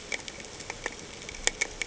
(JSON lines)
{"label": "ambient", "recorder": "HydroMoth"}